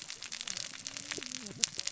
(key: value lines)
label: biophony, cascading saw
recorder: SoundTrap 600 or HydroMoth